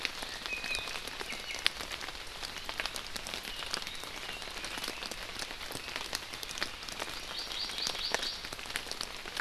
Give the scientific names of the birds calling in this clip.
Drepanis coccinea, Chlorodrepanis virens